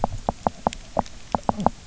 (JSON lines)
{"label": "biophony, knock croak", "recorder": "SoundTrap 300"}